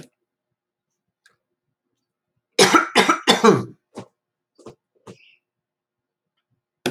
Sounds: Cough